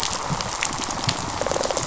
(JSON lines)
{"label": "biophony, rattle response", "recorder": "SoundTrap 500"}